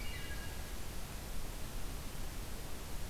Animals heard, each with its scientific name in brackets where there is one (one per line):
Common Yellowthroat (Geothlypis trichas)
Wood Thrush (Hylocichla mustelina)